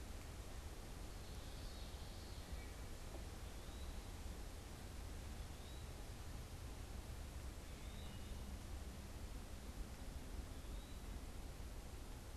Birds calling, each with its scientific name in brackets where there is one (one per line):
Eastern Wood-Pewee (Contopus virens)
Common Yellowthroat (Geothlypis trichas)
unidentified bird
Wood Thrush (Hylocichla mustelina)